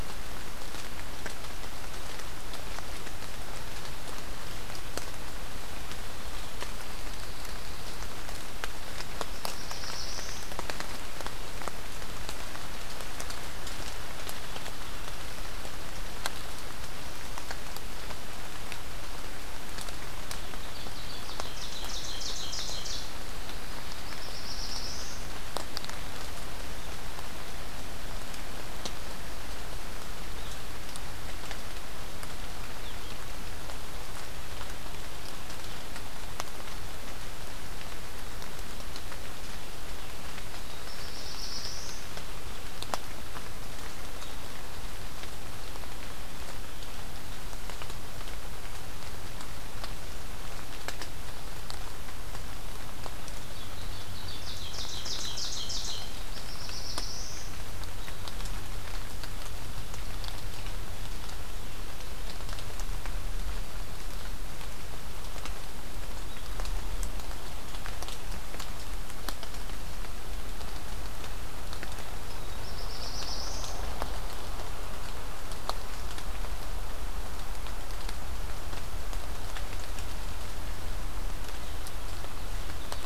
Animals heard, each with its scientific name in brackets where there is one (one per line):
Black-throated Blue Warbler (Setophaga caerulescens)
Pine Warbler (Setophaga pinus)
Ovenbird (Seiurus aurocapilla)